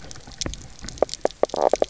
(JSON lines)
{"label": "biophony, knock croak", "recorder": "SoundTrap 300"}